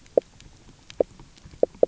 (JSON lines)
{"label": "biophony, knock croak", "recorder": "SoundTrap 300"}